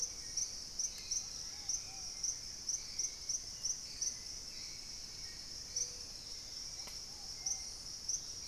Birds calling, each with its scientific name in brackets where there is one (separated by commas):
Ruddy Pigeon (Patagioenas subvinacea), Hauxwell's Thrush (Turdus hauxwelli)